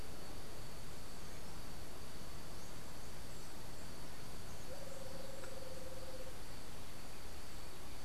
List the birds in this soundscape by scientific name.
Eubucco bourcierii